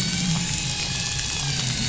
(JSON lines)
{"label": "anthrophony, boat engine", "recorder": "SoundTrap 500"}